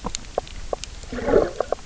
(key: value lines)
label: biophony, knock croak
recorder: SoundTrap 300